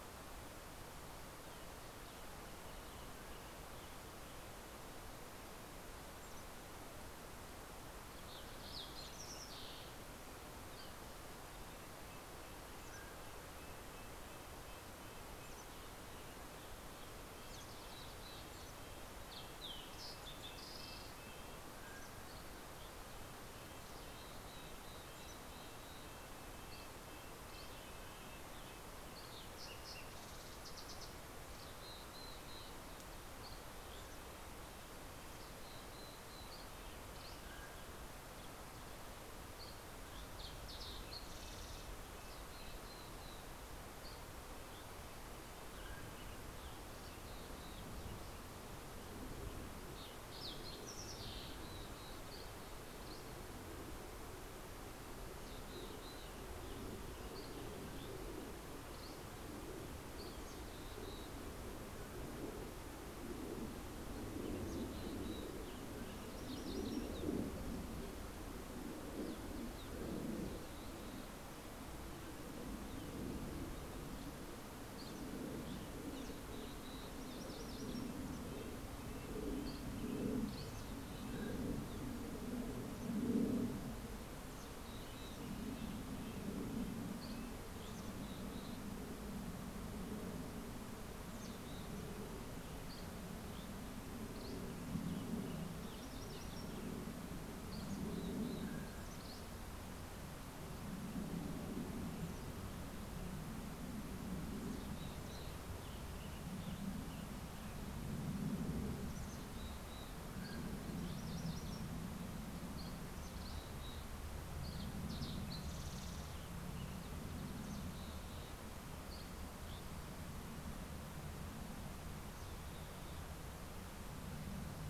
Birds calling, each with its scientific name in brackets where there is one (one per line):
Mountain Chickadee (Poecile gambeli)
Western Tanager (Piranga ludoviciana)
Red-breasted Nuthatch (Sitta canadensis)
Dusky Flycatcher (Empidonax oberholseri)
Mountain Quail (Oreortyx pictus)
Fox Sparrow (Passerella iliaca)
MacGillivray's Warbler (Geothlypis tolmiei)